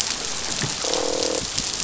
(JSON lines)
{"label": "biophony, croak", "recorder": "SoundTrap 500"}